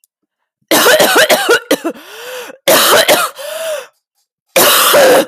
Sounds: Cough